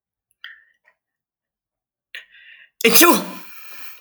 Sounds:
Sneeze